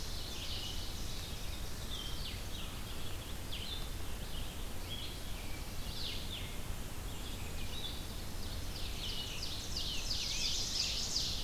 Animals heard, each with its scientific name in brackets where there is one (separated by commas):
Red-eyed Vireo (Vireo olivaceus), Ovenbird (Seiurus aurocapilla)